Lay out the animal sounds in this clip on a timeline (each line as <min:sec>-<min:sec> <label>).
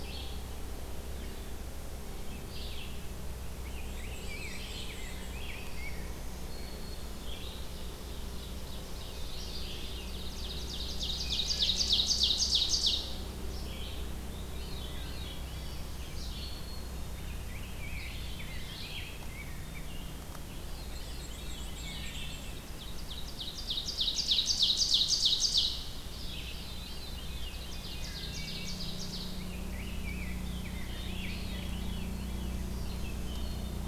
0:00.0-0:31.9 Red-eyed Vireo (Vireo olivaceus)
0:03.5-0:06.7 Rose-breasted Grosbeak (Pheucticus ludovicianus)
0:03.7-0:05.5 Black-and-white Warbler (Mniotilta varia)
0:04.1-0:05.4 Veery (Catharus fuscescens)
0:05.4-0:07.4 Black-throated Green Warbler (Setophaga virens)
0:07.5-0:09.3 Ovenbird (Seiurus aurocapilla)
0:09.7-0:13.1 Ovenbird (Seiurus aurocapilla)
0:14.1-0:16.5 Veery (Catharus fuscescens)
0:15.4-0:17.0 Black-throated Green Warbler (Setophaga virens)
0:17.0-0:20.0 Rose-breasted Grosbeak (Pheucticus ludovicianus)
0:20.3-0:22.8 Veery (Catharus fuscescens)
0:20.6-0:22.7 Black-and-white Warbler (Mniotilta varia)
0:22.7-0:26.1 Ovenbird (Seiurus aurocapilla)
0:25.9-0:28.9 Veery (Catharus fuscescens)
0:27.2-0:29.6 Ovenbird (Seiurus aurocapilla)
0:29.2-0:31.1 Rose-breasted Grosbeak (Pheucticus ludovicianus)
0:30.7-0:32.6 Veery (Catharus fuscescens)
0:32.4-0:33.9 Black-throated Green Warbler (Setophaga virens)
0:32.9-0:33.9 Wood Thrush (Hylocichla mustelina)